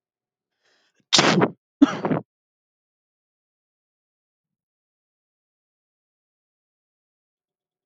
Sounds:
Sneeze